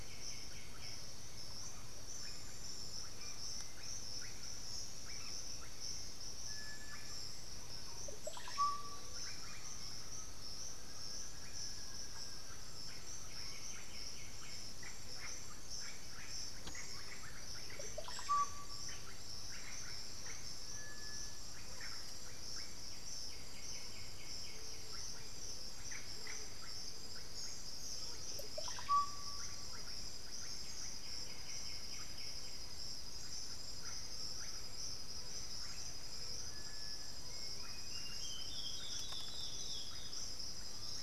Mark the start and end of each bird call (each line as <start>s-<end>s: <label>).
0.0s-1.4s: White-winged Becard (Pachyramphus polychopterus)
0.0s-4.7s: Black-billed Thrush (Turdus ignobilis)
0.0s-41.0s: Russet-backed Oropendola (Psarocolius angustifrons)
8.4s-9.9s: Black-throated Antbird (Myrmophylax atrothorax)
9.5s-11.8s: Undulated Tinamou (Crypturellus undulatus)
10.3s-13.2s: unidentified bird
12.9s-14.8s: White-winged Becard (Pachyramphus polychopterus)
20.4s-22.5s: Undulated Tinamou (Crypturellus undulatus)
23.1s-25.0s: White-winged Becard (Pachyramphus polychopterus)
24.3s-26.7s: Scaled Pigeon (Patagioenas speciosa)
30.9s-32.8s: White-winged Becard (Pachyramphus polychopterus)
33.7s-41.0s: Undulated Tinamou (Crypturellus undulatus)
37.0s-40.4s: Olivaceous Woodcreeper (Sittasomus griseicapillus)